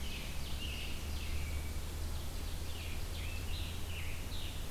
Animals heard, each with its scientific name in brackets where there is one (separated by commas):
Ovenbird (Seiurus aurocapilla), American Robin (Turdus migratorius), Scarlet Tanager (Piranga olivacea)